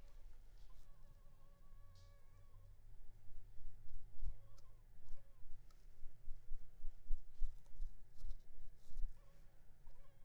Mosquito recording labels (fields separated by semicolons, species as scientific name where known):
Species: Culex pipiens complex; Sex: female; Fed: unfed; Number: one; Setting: cup